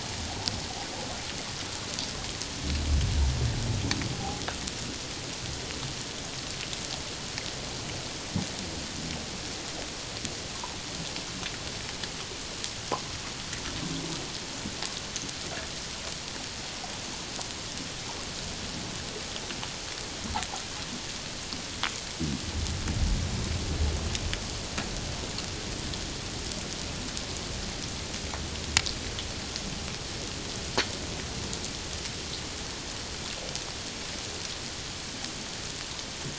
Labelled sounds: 4.1	4.4	humpback whale, 0.78 to 0.88 kHz

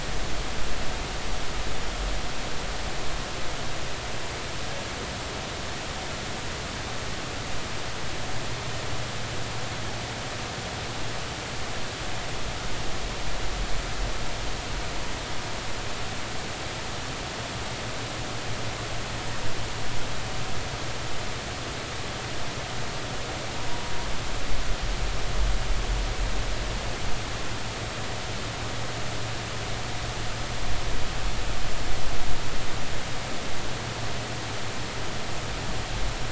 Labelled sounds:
23.7	23.9	humpback whale, 0.90 to 1.0 kHz

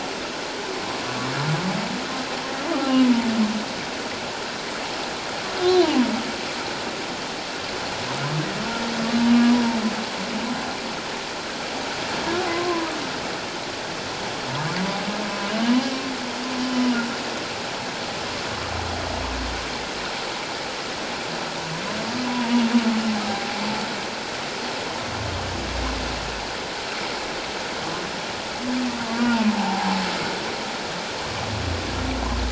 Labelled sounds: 5.6	5.9	humpback whale, 3.9 to 4.2 kHz
12.5	12.9	humpback whale, 0.94 to 1.1 kHz
22.2	22.6	humpback whale, 0.88 to 1.0 kHz
23.3	23.6	humpback whale, 0.78 to 0.84 kHz
29.0	29.9	humpback whale, 0.78 to 1.2 kHz

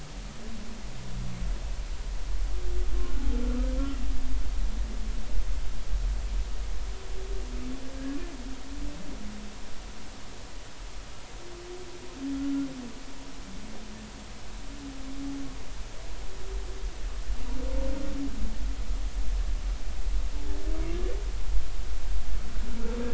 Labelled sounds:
3.2	3.4	humpback whale, 0.80 to 0.90 kHz

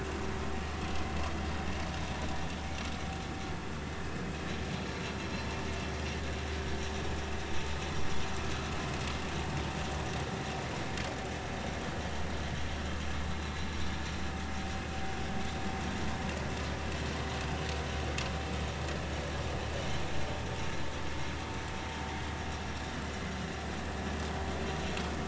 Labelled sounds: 4.7	5.0	vessel noise, 4.1 to 4.2 kHz
6.6	6.8	vessel noise, 1.5 to 1.7 kHz

